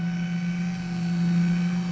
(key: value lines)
label: anthrophony, boat engine
recorder: SoundTrap 500